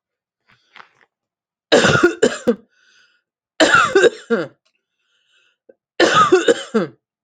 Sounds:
Cough